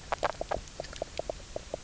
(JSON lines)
{"label": "biophony, low growl", "recorder": "SoundTrap 300"}